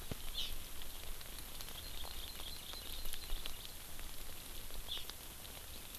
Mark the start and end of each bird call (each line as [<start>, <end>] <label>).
[0.32, 0.52] Hawaii Amakihi (Chlorodrepanis virens)
[1.62, 3.52] Hawaii Amakihi (Chlorodrepanis virens)
[4.82, 5.02] Hawaii Amakihi (Chlorodrepanis virens)